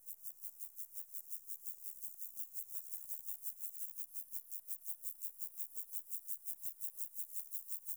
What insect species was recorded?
Chorthippus vagans